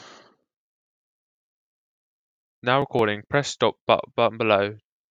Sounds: Cough